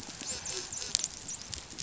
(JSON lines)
{"label": "biophony, dolphin", "recorder": "SoundTrap 500"}